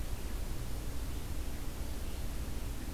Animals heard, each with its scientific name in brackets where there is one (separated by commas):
Red-eyed Vireo (Vireo olivaceus)